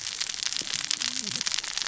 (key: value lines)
label: biophony, cascading saw
recorder: SoundTrap 600 or HydroMoth